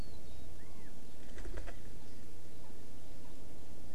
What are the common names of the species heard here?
Chinese Hwamei